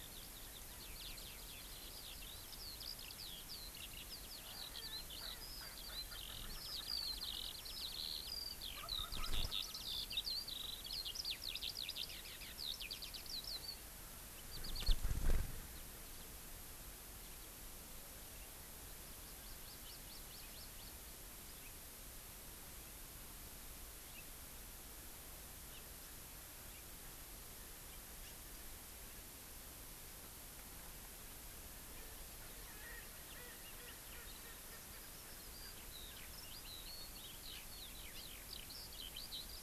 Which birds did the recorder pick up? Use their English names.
Eurasian Skylark, California Quail, Erckel's Francolin, Wild Turkey, Hawaii Amakihi, House Finch